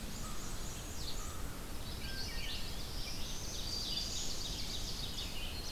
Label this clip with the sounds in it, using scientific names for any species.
Mniotilta varia, Corvus brachyrhynchos, Vireo olivaceus, Setophaga pensylvanica, Hylocichla mustelina, Seiurus aurocapilla, Setophaga virens